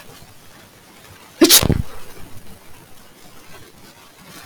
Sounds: Sneeze